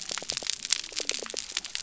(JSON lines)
{"label": "biophony", "recorder": "SoundTrap 300"}